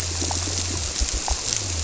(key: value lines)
label: biophony
recorder: SoundTrap 300